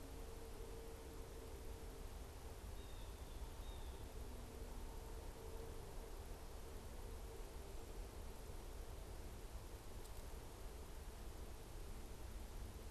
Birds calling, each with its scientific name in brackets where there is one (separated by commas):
Blue Jay (Cyanocitta cristata)